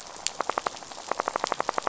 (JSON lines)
{"label": "biophony, knock", "recorder": "SoundTrap 500"}